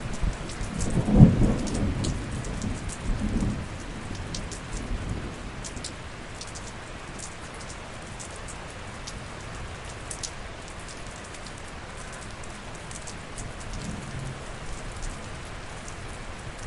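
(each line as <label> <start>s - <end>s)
Rustling leaves. 0.1s - 16.7s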